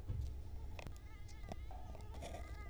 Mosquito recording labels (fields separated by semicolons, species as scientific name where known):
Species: Culex quinquefasciatus; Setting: cup